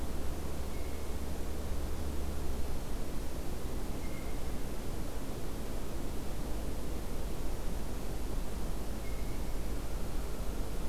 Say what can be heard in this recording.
Blue Jay, American Crow